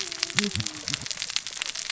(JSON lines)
{"label": "biophony, cascading saw", "recorder": "SoundTrap 600 or HydroMoth"}